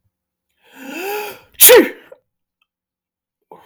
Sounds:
Sneeze